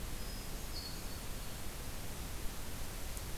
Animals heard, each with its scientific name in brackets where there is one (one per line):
Ovenbird (Seiurus aurocapilla)